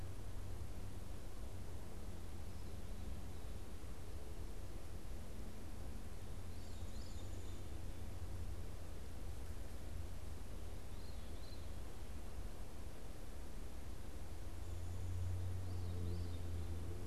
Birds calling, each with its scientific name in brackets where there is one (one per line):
Veery (Catharus fuscescens)